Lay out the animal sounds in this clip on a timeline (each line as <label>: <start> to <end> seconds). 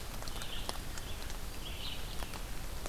Red-eyed Vireo (Vireo olivaceus): 0.0 to 2.9 seconds